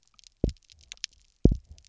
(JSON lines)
{"label": "biophony, double pulse", "recorder": "SoundTrap 300"}